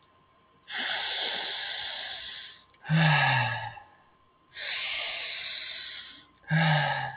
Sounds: Sniff